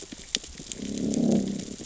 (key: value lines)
label: biophony, growl
recorder: SoundTrap 600 or HydroMoth